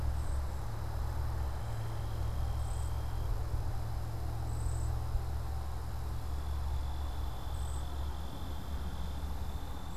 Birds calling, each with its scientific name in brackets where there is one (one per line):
Cedar Waxwing (Bombycilla cedrorum)